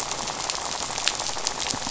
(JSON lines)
{"label": "biophony, rattle", "recorder": "SoundTrap 500"}